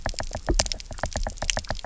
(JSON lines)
{"label": "biophony, knock", "recorder": "SoundTrap 300"}